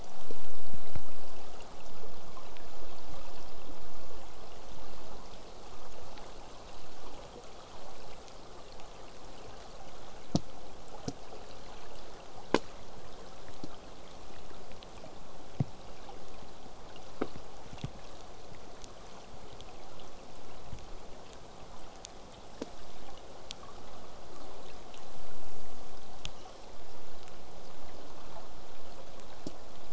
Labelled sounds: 25.5	26.7	killer whale, southern resident, J pod, call S10, 0.12 to 8.0 kHz
28.0	28.5	killer whale, southern resident, J pod, call S04, 0.11 to 1.7 kHz

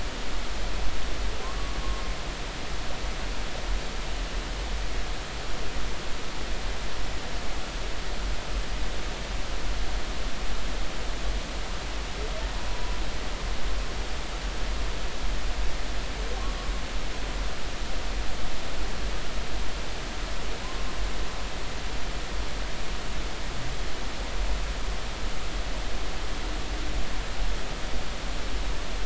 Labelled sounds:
12.7	13.0	humpback whale, 0.93 to 1.1 kHz

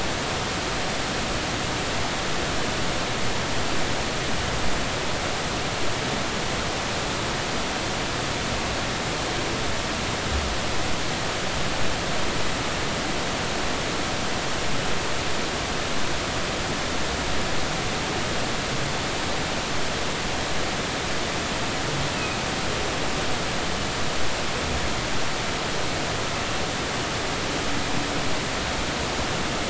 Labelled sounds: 22.1	22.4	humpback whale, 2.4 to 2.7 kHz

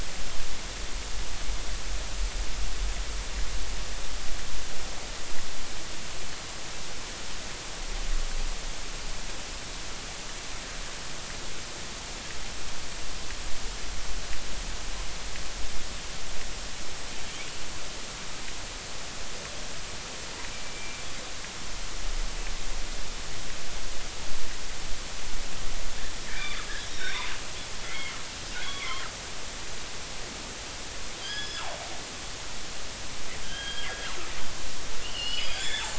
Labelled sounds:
20.5	21.0	killer whale, northern resident, G clan, GG subclan, call N44, 2.3 to 2.4 kHz
26.3	27.3	killer whale, northern resident, G clan, call N23i, 1.5 to 5.7 kHz
27.8	28.1	killer whale, northern resident, G clan, call N23i, 2.0 to 2.3 kHz
28.6	29.0	killer whale, northern resident, G clan, call N23i, 0.99 to 3.4 kHz
31.2	31.7	killer whale, northern resident, G clan, GG subclan, call N28, 1.5 to 5.2 kHz
33.4	34.2	killer whale, northern resident, G clan, GG subclan, call N28, 1.2 to 3.3 kHz
35.0	35.9	killer whale, northern resident, G clan, 2.7 to 5.3 kHz

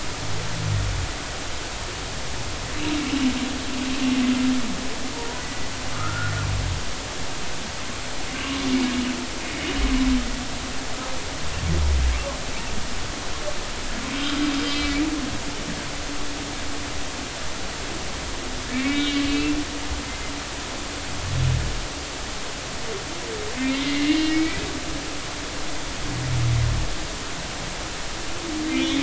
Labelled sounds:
5.1	6.3	humpback whale, 0.90 to 2.0 kHz
14.7	15.1	humpback whale, 2.2 to 2.5 kHz
18.7	19.6	humpback whale, 2.1 to 3.8 kHz
23.6	24.6	humpback whale, 1.9 to 2.9 kHz

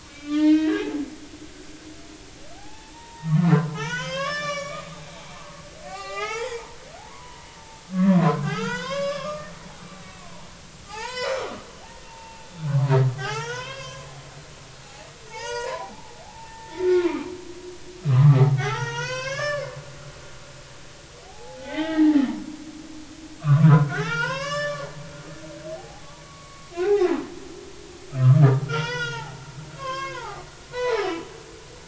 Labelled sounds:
0.0	1.6	humpback whale, 1.1 to 5.0 kHz
2.5	7.5	humpback whale, 0.80 to 7.2 kHz
8.1	9.7	humpback whale, 0.90 to 6.6 kHz
10.9	11.4	humpback whale, 0.80 to 6.8 kHz
12.1	14.1	humpback whale, 0.80 to 4.9 kHz
15.2	17.3	humpback whale, 0.80 to 6.3 kHz
18.0	19.7	humpback whale, 0.80 to 6.9 kHz
21.3	22.2	humpback whale, 0.80 to 2.3 kHz
23.4	24.9	humpback whale, 0.80 to 7.6 kHz
25.3	27.2	humpback whale, 0.80 to 5.3 kHz
28.1	29.3	humpback whale, 0.80 to 6.0 kHz
29.8	31.1	humpback whale, 0.80 to 6.5 kHz

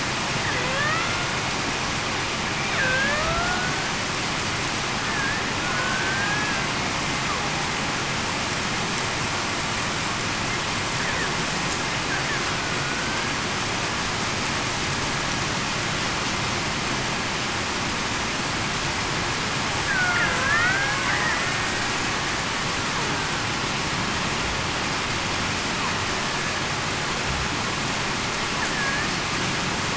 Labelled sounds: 0.5	1.0	killer whale, Bigg's (transient), 0.47 to 0.66 kHz
2.8	3.2	killer whale, Bigg's (transient), 1.5 to 1.9 kHz
5.6	6.7	killer whale, Bigg's (transient), 1.4 to 1.7 kHz
12.8	13.3	killer whale, Bigg's (transient), 1.4 to 1.7 kHz
19.9	20.8	killer whale, Bigg's (transient), 1.4 to 2.0 kHz
28.7	29.1	killer whale, Bigg's (transient), 1.6 to 1.8 kHz

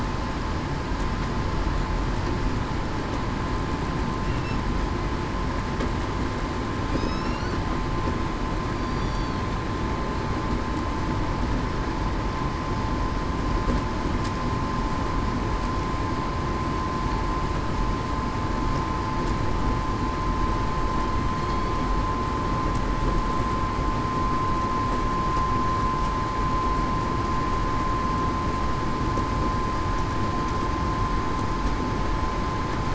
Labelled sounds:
6.9	7.5	killer whale, southern resident, 2.5 to 5.6 kHz
8.8	9.4	killer whale, southern resident, 4.3 to 5.9 kHz

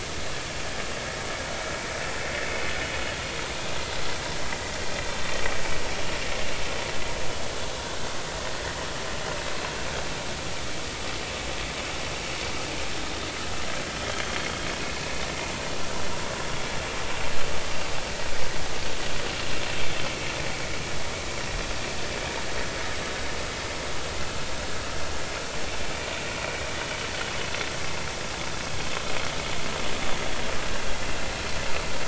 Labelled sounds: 14.2	14.5	vessel noise, 3.1 to 3.3 kHz
17.7	17.9	vessel noise, 4.5 to 4.8 kHz

